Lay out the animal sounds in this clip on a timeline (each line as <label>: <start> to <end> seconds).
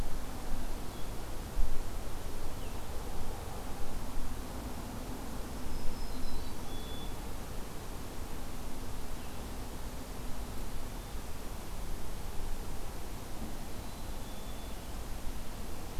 Blue-headed Vireo (Vireo solitarius): 0.0 to 3.0 seconds
Black-throated Green Warbler (Setophaga virens): 5.5 to 6.5 seconds
Black-capped Chickadee (Poecile atricapillus): 6.1 to 7.2 seconds
Black-capped Chickadee (Poecile atricapillus): 13.7 to 14.8 seconds